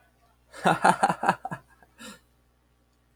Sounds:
Laughter